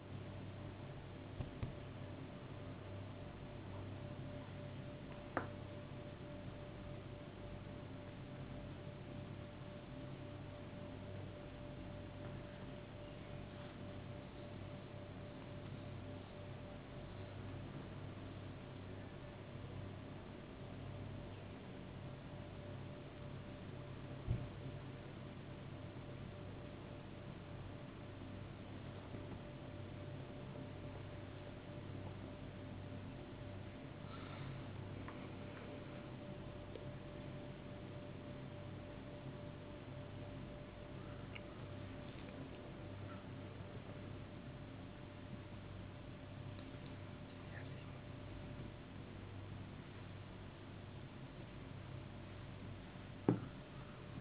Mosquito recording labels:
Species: no mosquito; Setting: insect culture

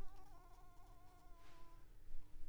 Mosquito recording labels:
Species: Anopheles coustani; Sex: female; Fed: unfed; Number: one; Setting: cup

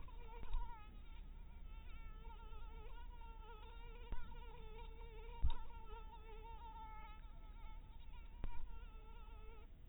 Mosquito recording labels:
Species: mosquito; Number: one; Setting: cup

